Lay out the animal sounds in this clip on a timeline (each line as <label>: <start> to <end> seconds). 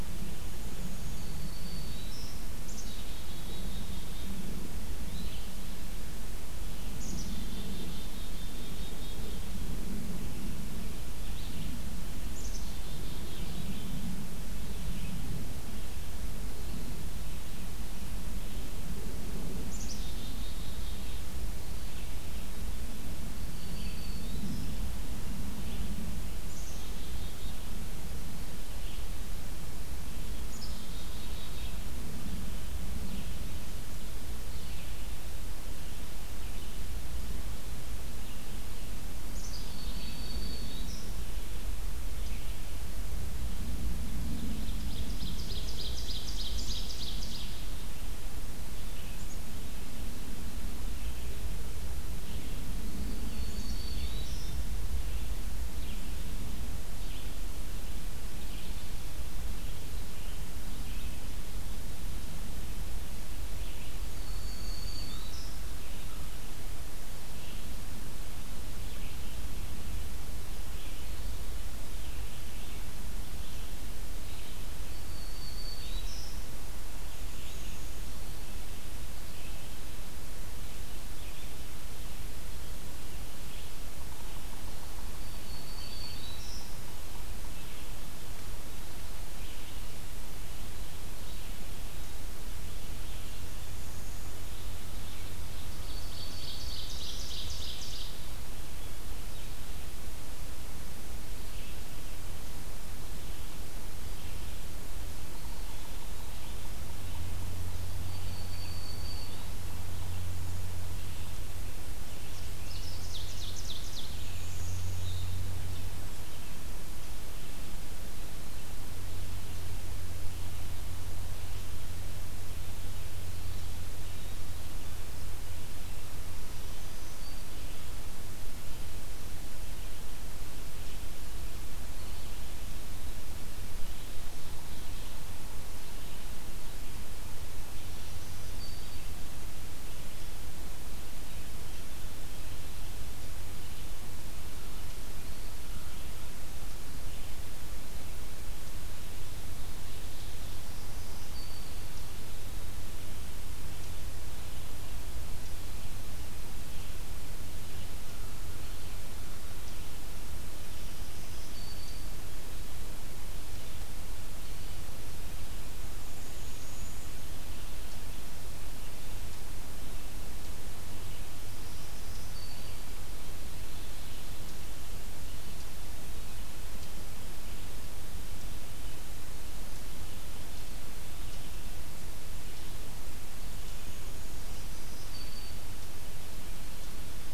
Black-throated Green Warbler (Setophaga virens): 1.0 to 2.5 seconds
Black-capped Chickadee (Poecile atricapillus): 2.6 to 4.7 seconds
Red-eyed Vireo (Vireo olivaceus): 5.0 to 61.4 seconds
Black-capped Chickadee (Poecile atricapillus): 6.8 to 10.0 seconds
Black-capped Chickadee (Poecile atricapillus): 12.1 to 14.4 seconds
Black-capped Chickadee (Poecile atricapillus): 19.5 to 21.6 seconds
Black-throated Green Warbler (Setophaga virens): 23.1 to 25.0 seconds
Black-capped Chickadee (Poecile atricapillus): 26.2 to 28.4 seconds
Black-capped Chickadee (Poecile atricapillus): 30.3 to 32.3 seconds
Black-capped Chickadee (Poecile atricapillus): 39.1 to 40.8 seconds
Black-throated Green Warbler (Setophaga virens): 39.3 to 41.4 seconds
Ovenbird (Seiurus aurocapilla): 44.3 to 48.1 seconds
Black-throated Green Warbler (Setophaga virens): 53.0 to 54.5 seconds
Black-capped Chickadee (Poecile atricapillus): 53.2 to 54.3 seconds
Red-eyed Vireo (Vireo olivaceus): 63.4 to 122.0 seconds
Black-throated Green Warbler (Setophaga virens): 63.9 to 65.7 seconds
American Crow (Corvus brachyrhynchos): 64.8 to 66.5 seconds
Black-throated Green Warbler (Setophaga virens): 74.5 to 77.1 seconds
Yellow-bellied Sapsucker (Sphyrapicus varius): 83.1 to 87.5 seconds
Black-throated Green Warbler (Setophaga virens): 85.0 to 87.6 seconds
Black-throated Green Warbler (Setophaga virens): 95.6 to 97.6 seconds
Ovenbird (Seiurus aurocapilla): 95.6 to 98.2 seconds
Yellow-bellied Sapsucker (Sphyrapicus varius): 104.8 to 110.8 seconds
Black-throated Green Warbler (Setophaga virens): 108.0 to 109.8 seconds
Ovenbird (Seiurus aurocapilla): 111.9 to 114.3 seconds
Black-throated Green Warbler (Setophaga virens): 126.2 to 127.8 seconds
Black-throated Green Warbler (Setophaga virens): 137.8 to 139.5 seconds
Black-throated Green Warbler (Setophaga virens): 150.3 to 152.3 seconds
Black-throated Green Warbler (Setophaga virens): 160.5 to 162.4 seconds
unidentified call: 165.9 to 167.2 seconds
Black-throated Green Warbler (Setophaga virens): 171.4 to 173.1 seconds
Eastern Chipmunk (Tamias striatus): 181.2 to 187.3 seconds
Black-throated Green Warbler (Setophaga virens): 184.2 to 185.8 seconds